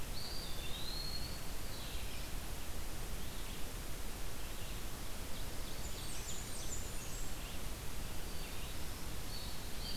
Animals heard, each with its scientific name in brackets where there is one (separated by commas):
Eastern Wood-Pewee (Contopus virens), Ovenbird (Seiurus aurocapilla), Blackburnian Warbler (Setophaga fusca), Blue-headed Vireo (Vireo solitarius), Red-eyed Vireo (Vireo olivaceus), Black-throated Green Warbler (Setophaga virens)